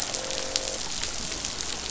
{"label": "biophony, croak", "recorder": "SoundTrap 500"}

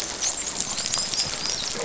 {"label": "biophony, dolphin", "recorder": "SoundTrap 500"}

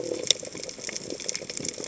{"label": "biophony", "recorder": "HydroMoth"}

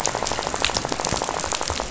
{"label": "biophony, rattle", "recorder": "SoundTrap 500"}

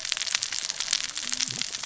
{"label": "biophony, cascading saw", "recorder": "SoundTrap 600 or HydroMoth"}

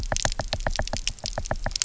{"label": "biophony, knock", "recorder": "SoundTrap 300"}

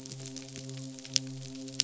{"label": "biophony, midshipman", "recorder": "SoundTrap 500"}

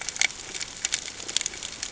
{"label": "ambient", "recorder": "HydroMoth"}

